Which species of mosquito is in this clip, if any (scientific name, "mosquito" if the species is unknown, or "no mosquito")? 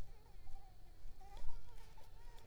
Culex pipiens complex